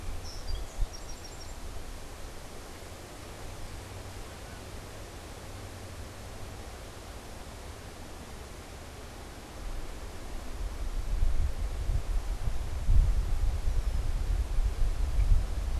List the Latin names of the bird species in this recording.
Melospiza melodia, Agelaius phoeniceus